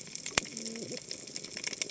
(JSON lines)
{"label": "biophony, cascading saw", "recorder": "HydroMoth"}